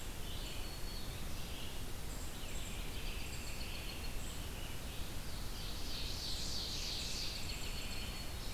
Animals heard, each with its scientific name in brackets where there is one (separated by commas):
Red-eyed Vireo (Vireo olivaceus), American Robin (Turdus migratorius), Black-throated Green Warbler (Setophaga virens), Ovenbird (Seiurus aurocapilla)